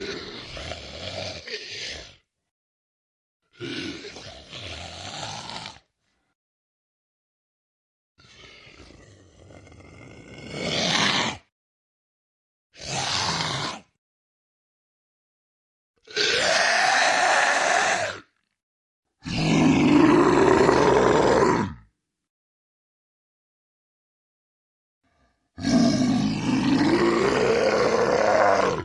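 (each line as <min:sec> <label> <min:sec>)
0:00.0 An undead creature whispers softly and groans quietly in an eerie and unsettling manner. 0:02.1
0:03.6 An undead creature whispers softly and groans quietly in an eerie and unsettling manner. 0:05.8
0:08.1 A chilling, distant growl from a monster creates a tense and creeping sense of impending danger. 0:14.0
0:16.0 A chilling, distant growl from a monster creates a tense and creeping sense of impending danger. 0:22.2
0:25.5 A terrifying, guttural roar from an undead monster filled with malice and aggression, creating an overwhelming sense of danger and horror. 0:28.8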